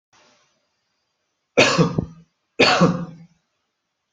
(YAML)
expert_labels:
- quality: good
  cough_type: dry
  dyspnea: false
  wheezing: false
  stridor: false
  choking: false
  congestion: false
  nothing: true
  diagnosis: upper respiratory tract infection
  severity: mild
age: 48
gender: male
respiratory_condition: false
fever_muscle_pain: false
status: healthy